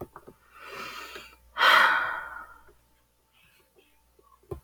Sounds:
Sigh